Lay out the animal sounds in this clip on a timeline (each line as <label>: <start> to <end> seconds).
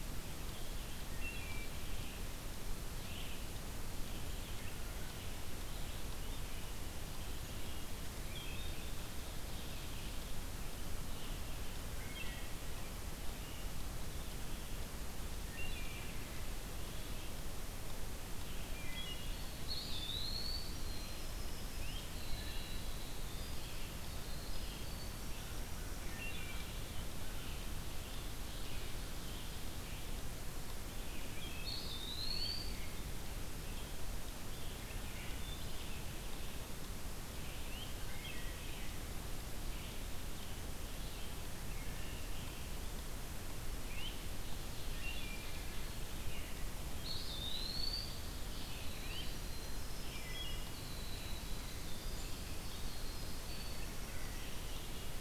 Red-eyed Vireo (Vireo olivaceus): 0.0 to 55.2 seconds
Wood Thrush (Hylocichla mustelina): 1.0 to 2.0 seconds
Wood Thrush (Hylocichla mustelina): 8.2 to 9.1 seconds
Wood Thrush (Hylocichla mustelina): 12.0 to 12.6 seconds
Wood Thrush (Hylocichla mustelina): 15.5 to 16.3 seconds
Wood Thrush (Hylocichla mustelina): 18.7 to 19.7 seconds
Eastern Wood-Pewee (Contopus virens): 19.4 to 20.8 seconds
Winter Wren (Troglodytes hiemalis): 20.6 to 26.3 seconds
Great Crested Flycatcher (Myiarchus crinitus): 21.7 to 22.1 seconds
Wood Thrush (Hylocichla mustelina): 26.0 to 26.9 seconds
Wood Thrush (Hylocichla mustelina): 31.3 to 31.9 seconds
Eastern Wood-Pewee (Contopus virens): 31.4 to 32.8 seconds
Wood Thrush (Hylocichla mustelina): 34.8 to 35.9 seconds
Great Crested Flycatcher (Myiarchus crinitus): 37.6 to 37.9 seconds
Wood Thrush (Hylocichla mustelina): 38.0 to 38.9 seconds
Wood Thrush (Hylocichla mustelina): 41.6 to 42.3 seconds
Great Crested Flycatcher (Myiarchus crinitus): 43.7 to 44.1 seconds
Wood Thrush (Hylocichla mustelina): 44.9 to 46.0 seconds
Eastern Wood-Pewee (Contopus virens): 46.7 to 48.4 seconds
Winter Wren (Troglodytes hiemalis): 48.4 to 54.9 seconds
Great Crested Flycatcher (Myiarchus crinitus): 48.9 to 49.3 seconds
Wood Thrush (Hylocichla mustelina): 49.9 to 50.9 seconds